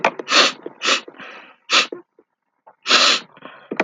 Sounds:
Sniff